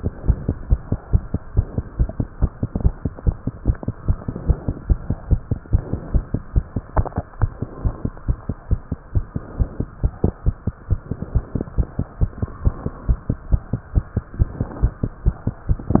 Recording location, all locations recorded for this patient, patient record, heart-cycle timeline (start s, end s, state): tricuspid valve (TV)
aortic valve (AV)+pulmonary valve (PV)+tricuspid valve (TV)+mitral valve (MV)
#Age: Child
#Sex: Female
#Height: 78.0 cm
#Weight: 10.3 kg
#Pregnancy status: False
#Murmur: Absent
#Murmur locations: nan
#Most audible location: nan
#Systolic murmur timing: nan
#Systolic murmur shape: nan
#Systolic murmur grading: nan
#Systolic murmur pitch: nan
#Systolic murmur quality: nan
#Diastolic murmur timing: nan
#Diastolic murmur shape: nan
#Diastolic murmur grading: nan
#Diastolic murmur pitch: nan
#Diastolic murmur quality: nan
#Outcome: Normal
#Campaign: 2015 screening campaign
0.00	3.54	unannotated
3.54	3.65	diastole
3.65	3.78	S1
3.78	3.86	systole
3.86	3.94	S2
3.94	4.06	diastole
4.06	4.18	S1
4.18	4.27	systole
4.27	4.34	S2
4.34	4.48	diastole
4.48	4.58	S1
4.58	4.68	systole
4.68	4.76	S2
4.76	4.88	diastole
4.88	5.00	S1
5.00	5.10	systole
5.10	5.18	S2
5.18	5.30	diastole
5.30	5.40	S1
5.40	5.52	systole
5.52	5.58	S2
5.58	5.72	diastole
5.72	5.84	S1
5.84	5.92	systole
5.92	6.00	S2
6.00	6.14	diastole
6.14	6.26	S1
6.26	6.33	systole
6.33	6.42	S2
6.42	6.56	diastole
6.56	6.66	S1
6.66	6.76	systole
6.76	6.84	S2
6.84	6.96	diastole
6.96	7.08	S1
7.08	7.16	systole
7.16	7.24	S2
7.24	7.42	diastole
7.42	7.52	S1
7.52	7.60	systole
7.60	7.68	S2
7.68	7.84	diastole
7.84	7.94	S1
7.94	8.03	systole
8.03	8.12	S2
8.12	8.28	diastole
8.28	8.38	S1
8.38	8.47	systole
8.47	8.55	S2
8.55	8.70	diastole
8.70	8.80	S1
8.80	8.90	systole
8.90	8.97	S2
8.97	9.16	diastole
9.16	9.26	S1
9.26	9.36	systole
9.36	9.42	S2
9.42	9.60	diastole
9.60	9.70	S1
9.70	9.80	systole
9.80	9.88	S2
9.88	10.04	diastole
10.04	10.14	S1
10.14	10.24	systole
10.24	10.34	S2
10.34	10.45	diastole
10.45	10.55	S1
10.55	10.65	systole
10.65	10.72	S2
10.72	10.89	diastole
10.89	11.00	S1
11.00	11.10	systole
11.10	11.16	S2
11.16	11.34	diastole
11.34	11.44	S1
11.44	11.53	systole
11.53	11.62	S2
11.62	11.78	diastole
11.78	11.88	S1
11.88	11.96	systole
11.96	12.06	S2
12.06	12.20	diastole
12.20	12.30	S1
12.30	12.40	systole
12.40	12.48	S2
12.48	12.64	diastole
12.64	12.74	S1
12.74	12.84	systole
12.84	12.94	S2
12.94	13.08	diastole
13.08	13.18	S1
13.18	13.28	systole
13.28	13.38	S2
13.38	13.52	diastole
13.52	13.62	S1
13.62	13.71	systole
13.71	13.80	S2
13.80	13.94	diastole
13.94	14.04	S1
14.04	14.15	systole
14.15	14.24	S2
14.24	14.37	diastole
14.37	14.50	S1
14.50	14.58	systole
14.58	14.68	S2
14.68	14.82	diastole
14.82	14.92	S1
14.92	15.02	systole
15.02	15.12	S2
15.12	15.26	diastole
15.26	15.36	S1
15.36	15.45	systole
15.45	15.56	S2
15.56	15.68	diastole
15.68	15.80	S1
15.80	15.89	systole
15.89	15.95	S2
15.95	16.00	unannotated